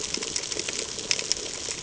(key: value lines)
label: ambient
recorder: HydroMoth